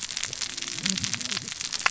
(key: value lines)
label: biophony, cascading saw
recorder: SoundTrap 600 or HydroMoth